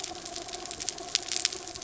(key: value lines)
label: anthrophony, mechanical
recorder: SoundTrap 300